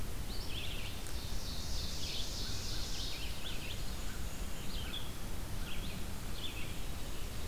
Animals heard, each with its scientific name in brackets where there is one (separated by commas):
Red-eyed Vireo (Vireo olivaceus), Black-and-white Warbler (Mniotilta varia), American Crow (Corvus brachyrhynchos), Ovenbird (Seiurus aurocapilla)